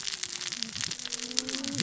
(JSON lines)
{"label": "biophony, cascading saw", "recorder": "SoundTrap 600 or HydroMoth"}